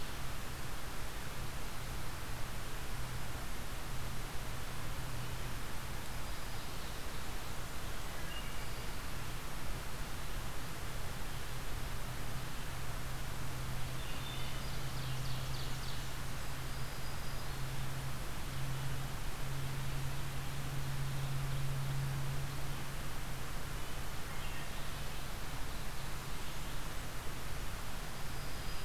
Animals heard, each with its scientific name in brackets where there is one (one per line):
Ovenbird (Seiurus aurocapilla)
Red-eyed Vireo (Vireo olivaceus)
Black-throated Green Warbler (Setophaga virens)
Blackburnian Warbler (Setophaga fusca)
Wood Thrush (Hylocichla mustelina)